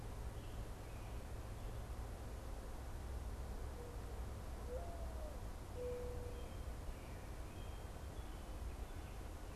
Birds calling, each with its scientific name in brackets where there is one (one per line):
Mourning Dove (Zenaida macroura)